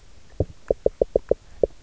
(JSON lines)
{"label": "biophony, knock", "recorder": "SoundTrap 300"}